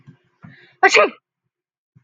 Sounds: Sneeze